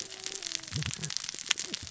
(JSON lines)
{"label": "biophony, cascading saw", "recorder": "SoundTrap 600 or HydroMoth"}